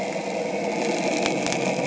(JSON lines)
{"label": "anthrophony, boat engine", "recorder": "HydroMoth"}